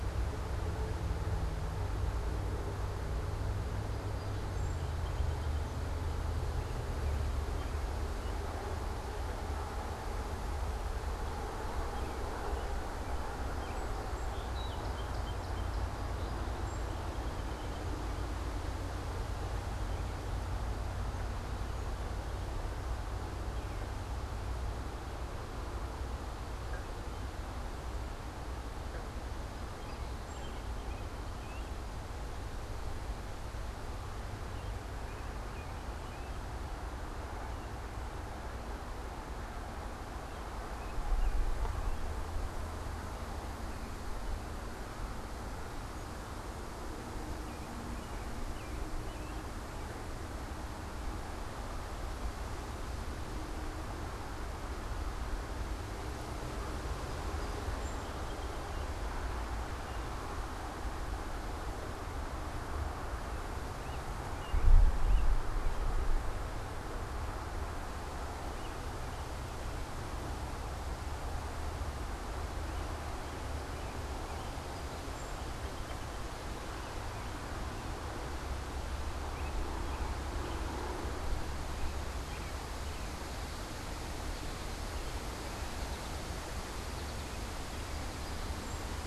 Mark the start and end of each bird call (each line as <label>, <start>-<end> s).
Song Sparrow (Melospiza melodia), 3.9-5.9 s
American Robin (Turdus migratorius), 6.7-8.6 s
American Robin (Turdus migratorius), 11.6-14.3 s
Song Sparrow (Melospiza melodia), 13.6-18.1 s
Song Sparrow (Melospiza melodia), 28.9-32.2 s
American Robin (Turdus migratorius), 34.4-36.5 s
American Robin (Turdus migratorius), 40.1-42.4 s
American Robin (Turdus migratorius), 47.0-49.8 s
Song Sparrow (Melospiza melodia), 56.7-59.3 s
American Robin (Turdus migratorius), 59.8-60.9 s
American Robin (Turdus migratorius), 63.8-65.6 s
American Robin (Turdus migratorius), 67.9-70.1 s
American Robin (Turdus migratorius), 72.4-74.8 s
Song Sparrow (Melospiza melodia), 74.5-76.7 s
American Robin (Turdus migratorius), 76.7-83.9 s
American Goldfinch (Spinus tristis), 83.4-89.0 s
unidentified bird, 88.5-89.0 s